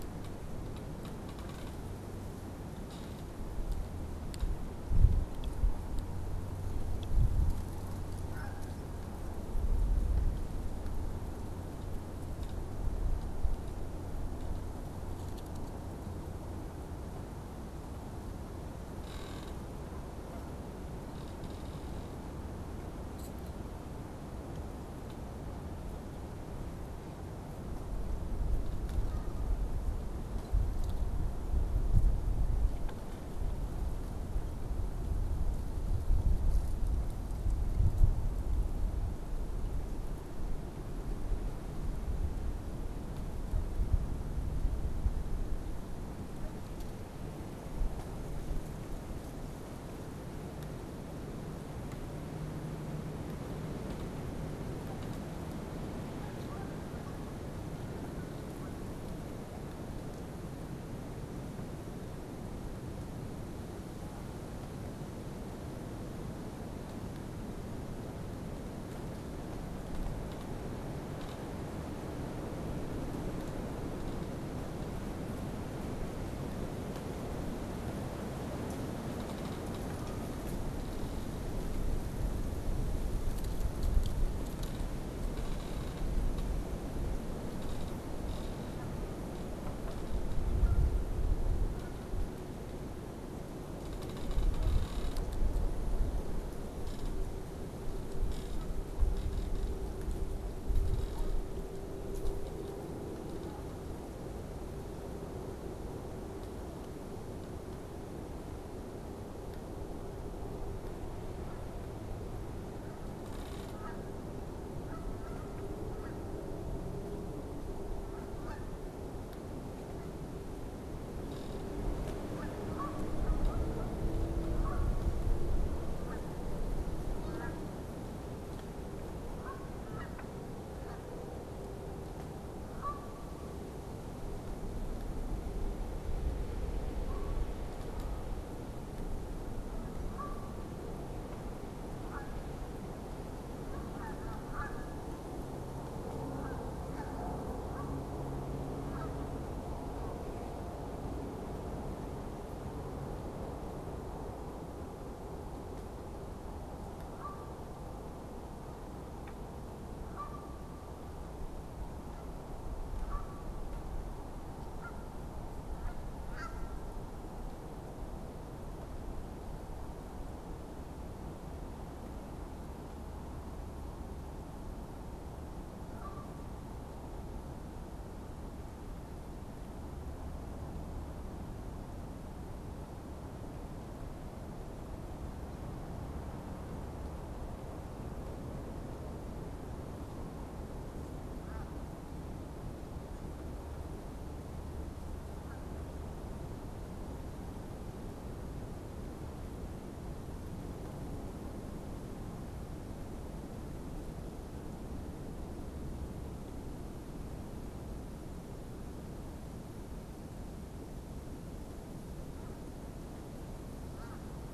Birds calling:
unidentified bird
Canada Goose (Branta canadensis)

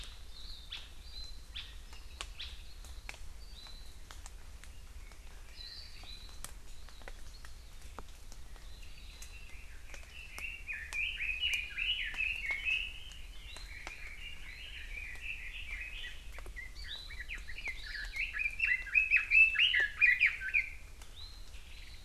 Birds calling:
Red-billed Leiothrix (Leiothrix lutea)
Hawaii Amakihi (Chlorodrepanis virens)
Warbling White-eye (Zosterops japonicus)

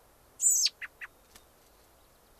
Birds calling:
American Robin (Turdus migratorius)
White-crowned Sparrow (Zonotrichia leucophrys)

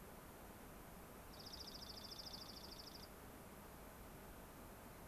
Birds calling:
Dark-eyed Junco (Junco hyemalis)

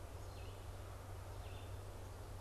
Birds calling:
Red-eyed Vireo (Vireo olivaceus)

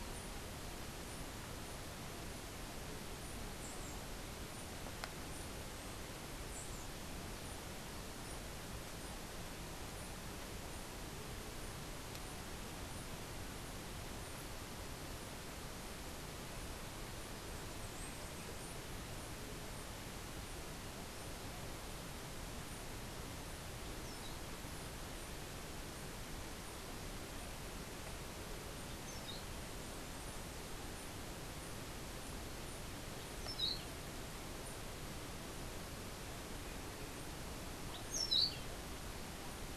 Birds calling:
Orange-billed Nightingale-Thrush (Catharus aurantiirostris)

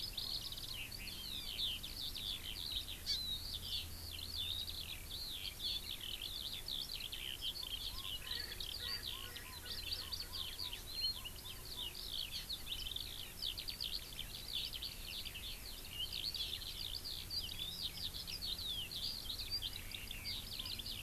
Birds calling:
Hawaii Amakihi (Chlorodrepanis virens)
Eurasian Skylark (Alauda arvensis)
Erckel's Francolin (Pternistis erckelii)

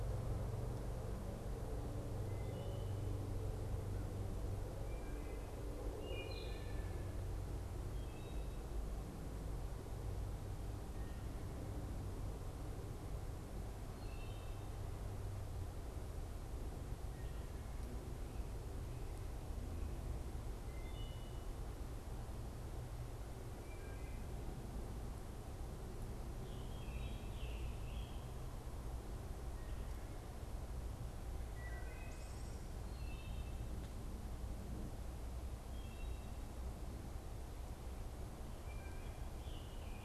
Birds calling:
Scarlet Tanager (Piranga olivacea)
Wood Thrush (Hylocichla mustelina)

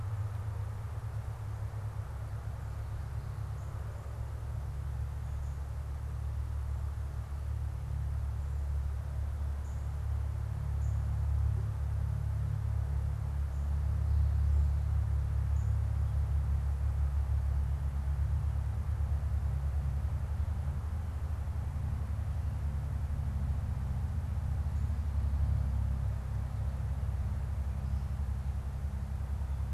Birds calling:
Northern Cardinal (Cardinalis cardinalis)

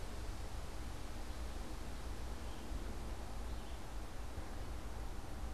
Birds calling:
Red-eyed Vireo (Vireo olivaceus)

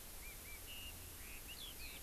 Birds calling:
Eurasian Skylark (Alauda arvensis)
Chinese Hwamei (Garrulax canorus)

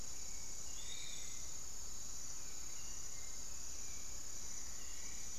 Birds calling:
Hauxwell's Thrush (Turdus hauxwelli)
Piratic Flycatcher (Legatus leucophaius)
Gray Antwren (Myrmotherula menetriesii)

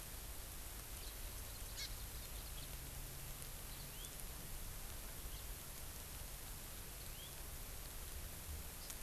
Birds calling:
Hawaii Amakihi (Chlorodrepanis virens)
House Finch (Haemorhous mexicanus)

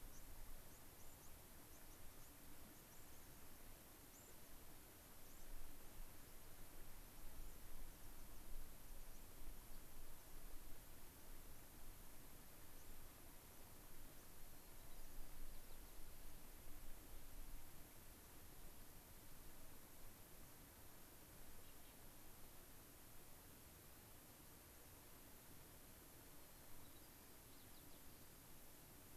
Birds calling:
White-crowned Sparrow (Zonotrichia leucophrys)

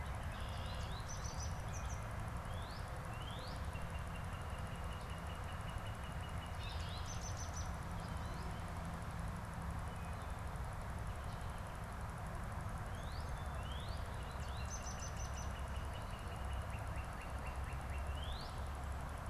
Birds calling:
Red-winged Blackbird (Agelaius phoeniceus)
Northern Cardinal (Cardinalis cardinalis)
American Goldfinch (Spinus tristis)

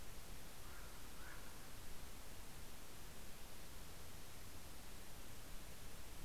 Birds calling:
Common Raven (Corvus corax)

